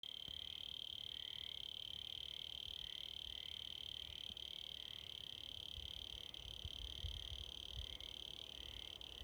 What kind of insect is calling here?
orthopteran